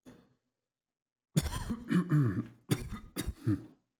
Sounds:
Cough